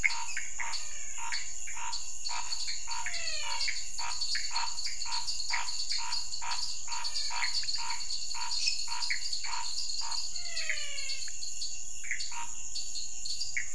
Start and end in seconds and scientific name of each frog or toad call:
0.0	10.4	Scinax fuscovarius
0.0	13.7	Dendropsophus nanus
0.0	13.7	Leptodactylus podicipinus
0.0	13.7	Pithecopus azureus
0.5	1.6	Physalaemus albonotatus
2.8	3.8	Physalaemus albonotatus
10.2	11.5	Physalaemus albonotatus
12.2	12.8	Scinax fuscovarius